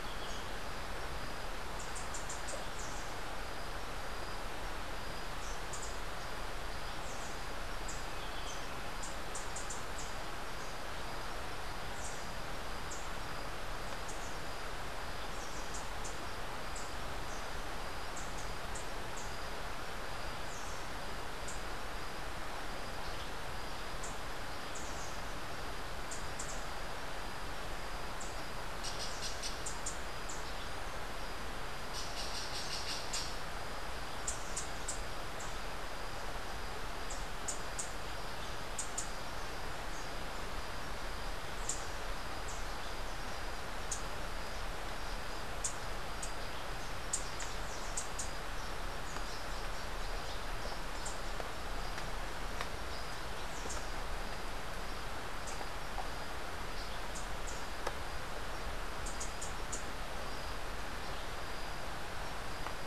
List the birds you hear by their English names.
Yellow-throated Euphonia, Rufous-capped Warbler, Squirrel Cuckoo